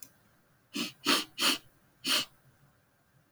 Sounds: Sniff